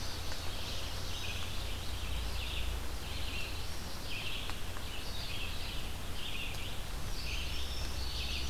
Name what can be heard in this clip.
Indigo Bunting, Red-eyed Vireo, Black-throated Blue Warbler, Ovenbird